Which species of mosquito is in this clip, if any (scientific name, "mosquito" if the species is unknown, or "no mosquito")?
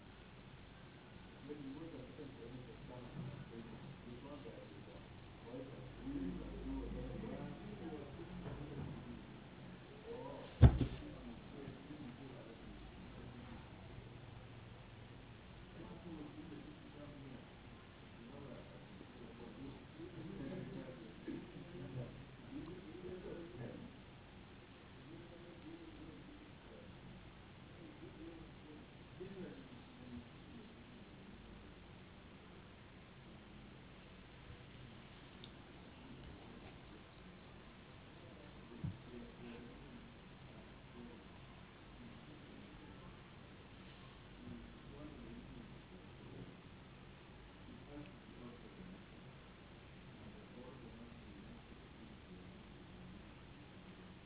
no mosquito